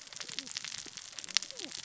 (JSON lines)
{"label": "biophony, cascading saw", "recorder": "SoundTrap 600 or HydroMoth"}